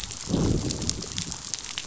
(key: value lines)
label: biophony, growl
recorder: SoundTrap 500